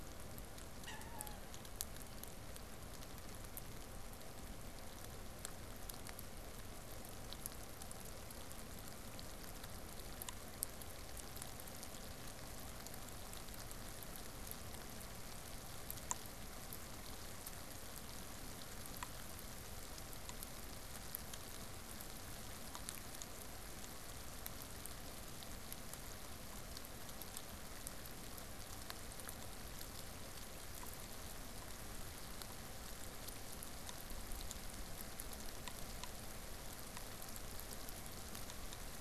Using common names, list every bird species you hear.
Wood Duck